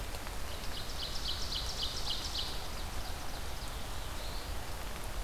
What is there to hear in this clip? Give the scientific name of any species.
Seiurus aurocapilla, Setophaga caerulescens